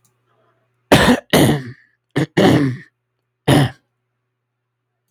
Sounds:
Throat clearing